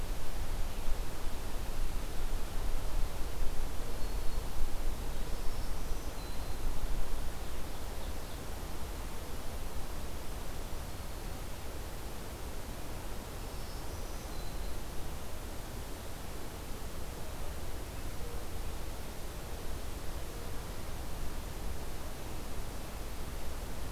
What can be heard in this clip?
Black-throated Green Warbler, Ovenbird